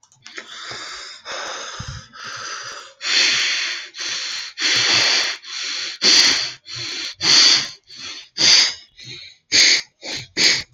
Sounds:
Sigh